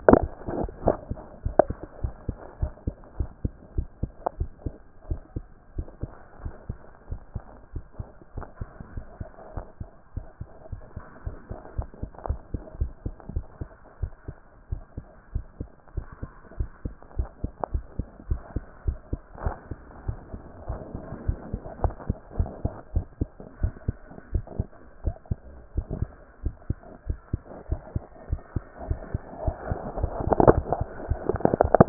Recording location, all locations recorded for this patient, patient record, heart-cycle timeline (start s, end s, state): mitral valve (MV)
aortic valve (AV)+pulmonary valve (PV)+tricuspid valve (TV)+mitral valve (MV)
#Age: Child
#Sex: Male
#Height: 123.0 cm
#Weight: 24.3 kg
#Pregnancy status: False
#Murmur: Absent
#Murmur locations: nan
#Most audible location: nan
#Systolic murmur timing: nan
#Systolic murmur shape: nan
#Systolic murmur grading: nan
#Systolic murmur pitch: nan
#Systolic murmur quality: nan
#Diastolic murmur timing: nan
#Diastolic murmur shape: nan
#Diastolic murmur grading: nan
#Diastolic murmur pitch: nan
#Diastolic murmur quality: nan
#Outcome: Normal
#Campaign: 2014 screening campaign
0.00	2.02	unannotated
2.02	2.14	S1
2.14	2.26	systole
2.26	2.36	S2
2.36	2.60	diastole
2.60	2.72	S1
2.72	2.86	systole
2.86	2.94	S2
2.94	3.18	diastole
3.18	3.30	S1
3.30	3.42	systole
3.42	3.52	S2
3.52	3.76	diastole
3.76	3.88	S1
3.88	4.02	systole
4.02	4.10	S2
4.10	4.38	diastole
4.38	4.50	S1
4.50	4.64	systole
4.64	4.74	S2
4.74	5.08	diastole
5.08	5.20	S1
5.20	5.34	systole
5.34	5.44	S2
5.44	5.76	diastole
5.76	5.88	S1
5.88	6.02	systole
6.02	6.12	S2
6.12	6.42	diastole
6.42	6.54	S1
6.54	6.68	systole
6.68	6.78	S2
6.78	7.10	diastole
7.10	7.20	S1
7.20	7.36	systole
7.36	7.44	S2
7.44	7.74	diastole
7.74	7.84	S1
7.84	8.00	systole
8.00	8.08	S2
8.08	8.36	diastole
8.36	8.46	S1
8.46	8.60	systole
8.60	8.70	S2
8.70	8.94	diastole
8.94	9.04	S1
9.04	9.20	systole
9.20	9.30	S2
9.30	9.54	diastole
9.54	9.64	S1
9.64	9.80	systole
9.80	9.90	S2
9.90	10.14	diastole
10.14	10.26	S1
10.26	10.40	systole
10.40	10.50	S2
10.50	10.70	diastole
10.70	10.82	S1
10.82	10.96	systole
10.96	11.04	S2
11.04	11.24	diastole
11.24	11.36	S1
11.36	11.50	systole
11.50	11.58	S2
11.58	11.76	diastole
11.76	11.88	S1
11.88	12.02	systole
12.02	12.10	S2
12.10	12.28	diastole
12.28	12.40	S1
12.40	12.52	systole
12.52	12.62	S2
12.62	12.80	diastole
12.80	12.92	S1
12.92	13.04	systole
13.04	13.14	S2
13.14	13.34	diastole
13.34	13.44	S1
13.44	13.60	systole
13.60	13.70	S2
13.70	14.00	diastole
14.00	14.12	S1
14.12	14.28	systole
14.28	14.36	S2
14.36	14.70	diastole
14.70	14.82	S1
14.82	14.96	systole
14.96	15.06	S2
15.06	15.34	diastole
15.34	15.44	S1
15.44	15.60	systole
15.60	15.70	S2
15.70	15.96	diastole
15.96	16.06	S1
16.06	16.22	systole
16.22	16.30	S2
16.30	16.58	diastole
16.58	16.70	S1
16.70	16.84	systole
16.84	16.94	S2
16.94	17.16	diastole
17.16	17.28	S1
17.28	17.42	systole
17.42	17.52	S2
17.52	17.72	diastole
17.72	17.84	S1
17.84	17.98	systole
17.98	18.06	S2
18.06	18.28	diastole
18.28	18.40	S1
18.40	18.54	systole
18.54	18.64	S2
18.64	18.86	diastole
18.86	18.98	S1
18.98	19.12	systole
19.12	19.20	S2
19.20	19.44	diastole
19.44	19.54	S1
19.54	19.70	systole
19.70	19.78	S2
19.78	20.06	diastole
20.06	20.18	S1
20.18	20.32	systole
20.32	20.42	S2
20.42	20.68	diastole
20.68	20.80	S1
20.80	20.94	systole
20.94	21.02	S2
21.02	21.26	diastole
21.26	21.38	S1
21.38	21.52	systole
21.52	21.62	S2
21.62	21.82	diastole
21.82	21.94	S1
21.94	22.08	systole
22.08	22.18	S2
22.18	22.36	diastole
22.36	22.50	S1
22.50	22.64	systole
22.64	22.72	S2
22.72	22.94	diastole
22.94	23.06	S1
23.06	23.20	systole
23.20	23.30	S2
23.30	23.60	diastole
23.60	23.74	S1
23.74	23.86	systole
23.86	23.96	S2
23.96	24.32	diastole
24.32	24.44	S1
24.44	24.58	systole
24.58	24.68	S2
24.68	25.04	diastole
25.04	25.16	S1
25.16	25.30	systole
25.30	25.38	S2
25.38	25.76	diastole
25.76	25.86	S1
25.86	26.00	systole
26.00	26.10	S2
26.10	26.42	diastole
26.42	26.54	S1
26.54	26.68	systole
26.68	26.78	S2
26.78	27.08	diastole
27.08	27.18	S1
27.18	27.32	systole
27.32	27.42	S2
27.42	27.70	diastole
27.70	27.82	S1
27.82	27.94	systole
27.94	28.04	S2
28.04	28.30	diastole
28.30	28.40	S1
28.40	28.54	systole
28.54	28.64	S2
28.64	28.88	diastole
28.88	29.00	S1
29.00	29.12	systole
29.12	29.22	S2
29.22	29.44	diastole
29.44	29.56	S1
29.56	29.68	systole
29.68	29.78	S2
29.78	29.98	diastole
29.98	31.89	unannotated